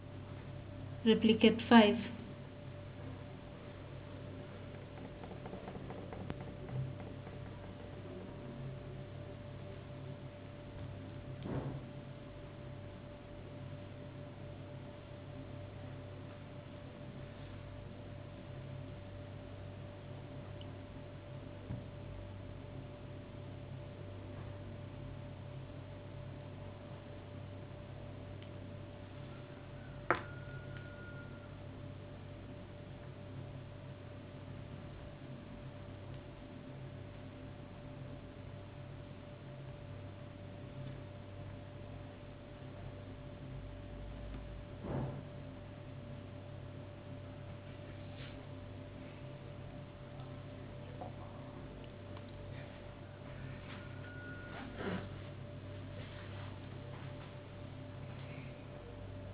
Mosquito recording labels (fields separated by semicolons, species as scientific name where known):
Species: no mosquito; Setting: insect culture